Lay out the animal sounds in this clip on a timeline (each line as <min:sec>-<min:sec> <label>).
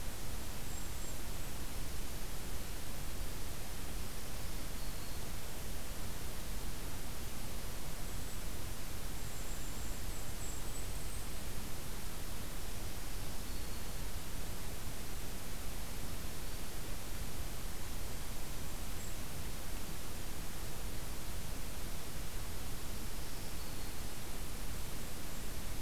0:00.6-0:01.7 Golden-crowned Kinglet (Regulus satrapa)
0:04.2-0:05.4 Black-throated Green Warbler (Setophaga virens)
0:07.8-0:08.5 Golden-crowned Kinglet (Regulus satrapa)
0:09.1-0:11.5 Golden-crowned Kinglet (Regulus satrapa)
0:12.6-0:14.1 Black-throated Green Warbler (Setophaga virens)
0:18.3-0:19.4 Golden-crowned Kinglet (Regulus satrapa)
0:22.9-0:24.0 Black-throated Green Warbler (Setophaga virens)
0:23.9-0:25.6 Golden-crowned Kinglet (Regulus satrapa)